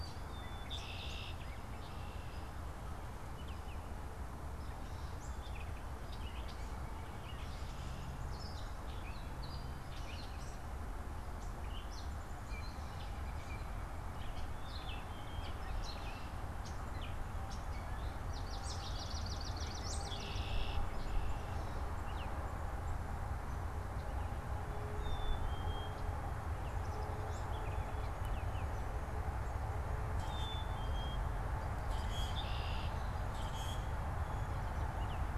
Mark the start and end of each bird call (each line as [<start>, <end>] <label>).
[0.20, 1.20] Black-capped Chickadee (Poecile atricapillus)
[1.40, 21.30] Gray Catbird (Dumetella carolinensis)
[1.70, 2.50] Red-winged Blackbird (Agelaius phoeniceus)
[3.20, 3.90] Baltimore Oriole (Icterus galbula)
[6.30, 8.10] White-breasted Nuthatch (Sitta carolinensis)
[12.40, 14.10] White-breasted Nuthatch (Sitta carolinensis)
[14.40, 15.70] unidentified bird
[14.50, 15.80] Black-capped Chickadee (Poecile atricapillus)
[18.20, 20.50] Swamp Sparrow (Melospiza georgiana)
[19.40, 21.00] White-breasted Nuthatch (Sitta carolinensis)
[19.80, 20.80] Red-winged Blackbird (Agelaius phoeniceus)
[22.00, 22.40] Baltimore Oriole (Icterus galbula)
[24.80, 26.10] Black-capped Chickadee (Poecile atricapillus)
[26.50, 27.70] Black-capped Chickadee (Poecile atricapillus)
[27.00, 28.90] Baltimore Oriole (Icterus galbula)
[29.90, 31.40] Black-capped Chickadee (Poecile atricapillus)
[30.00, 30.70] Common Grackle (Quiscalus quiscula)
[31.70, 32.50] Common Grackle (Quiscalus quiscula)
[32.30, 33.00] Red-winged Blackbird (Agelaius phoeniceus)
[33.20, 33.80] Common Grackle (Quiscalus quiscula)
[34.80, 35.20] Baltimore Oriole (Icterus galbula)